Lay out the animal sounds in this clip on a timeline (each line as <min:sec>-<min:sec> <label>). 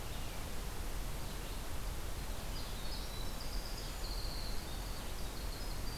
0:00.0-0:06.0 Red-eyed Vireo (Vireo olivaceus)
0:02.2-0:06.0 Winter Wren (Troglodytes hiemalis)